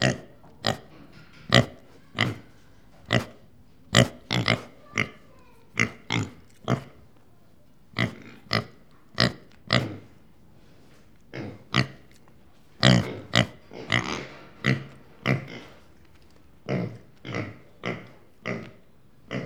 Is a truck driving down the street?
no